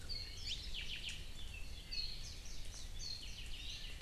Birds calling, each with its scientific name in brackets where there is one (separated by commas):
Hawaii Creeper (Loxops mana), Warbling White-eye (Zosterops japonicus), Apapane (Himatione sanguinea)